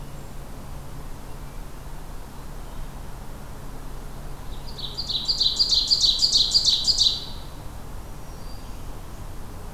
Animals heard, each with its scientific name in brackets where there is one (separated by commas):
Ovenbird (Seiurus aurocapilla), Black-throated Green Warbler (Setophaga virens)